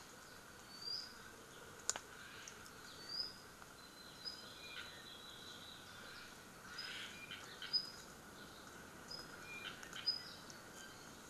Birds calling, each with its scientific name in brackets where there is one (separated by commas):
Omao (Myadestes obscurus), Red-billed Leiothrix (Leiothrix lutea), Apapane (Himatione sanguinea)